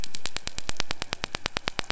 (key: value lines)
label: anthrophony, boat engine
recorder: SoundTrap 500